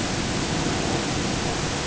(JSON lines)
{"label": "ambient", "recorder": "HydroMoth"}